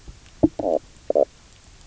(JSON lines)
{"label": "biophony, knock croak", "recorder": "SoundTrap 300"}